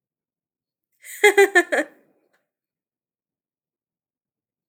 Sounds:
Laughter